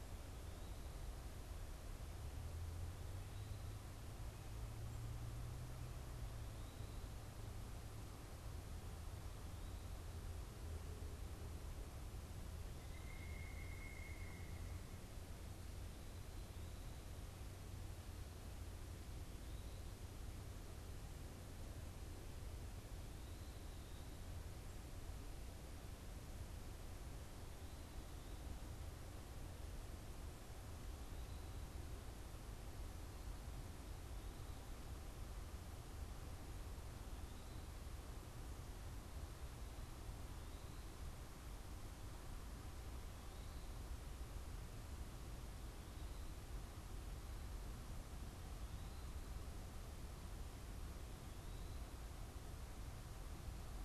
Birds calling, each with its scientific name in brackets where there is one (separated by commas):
Pileated Woodpecker (Dryocopus pileatus)